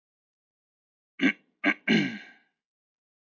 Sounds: Throat clearing